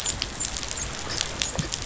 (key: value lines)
label: biophony, dolphin
recorder: SoundTrap 500